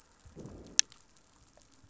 {"label": "biophony, growl", "recorder": "SoundTrap 500"}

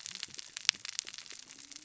{"label": "biophony, cascading saw", "recorder": "SoundTrap 600 or HydroMoth"}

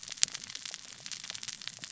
{"label": "biophony, cascading saw", "recorder": "SoundTrap 600 or HydroMoth"}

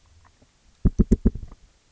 {"label": "biophony", "recorder": "SoundTrap 300"}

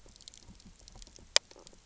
{"label": "biophony, knock croak", "recorder": "SoundTrap 300"}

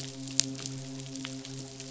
{"label": "biophony, midshipman", "recorder": "SoundTrap 500"}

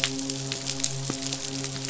{"label": "biophony, midshipman", "recorder": "SoundTrap 500"}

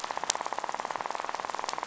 {"label": "biophony, rattle", "recorder": "SoundTrap 500"}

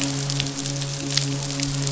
{"label": "biophony, midshipman", "recorder": "SoundTrap 500"}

